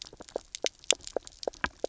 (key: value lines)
label: biophony, knock croak
recorder: SoundTrap 300